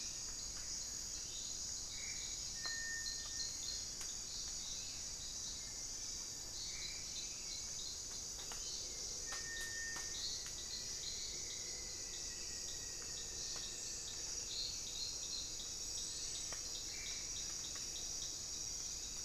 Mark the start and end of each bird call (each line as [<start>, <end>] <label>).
[0.00, 10.07] Hauxwell's Thrush (Turdus hauxwelli)
[1.37, 2.47] Black-faced Antthrush (Formicarius analis)
[6.27, 7.47] Black-faced Antthrush (Formicarius analis)
[9.67, 14.17] Rufous-fronted Antthrush (Formicarius rufifrons)
[16.07, 17.67] Black-faced Antthrush (Formicarius analis)